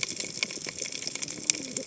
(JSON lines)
{"label": "biophony, cascading saw", "recorder": "HydroMoth"}